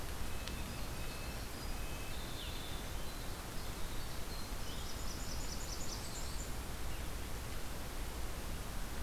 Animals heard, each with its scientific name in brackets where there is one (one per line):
Blackburnian Warbler (Setophaga fusca)
Winter Wren (Troglodytes hiemalis)
Red-breasted Nuthatch (Sitta canadensis)